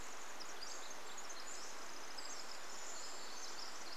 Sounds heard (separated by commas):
Pacific Wren song, Pacific-slope Flycatcher song, Brown Creeper call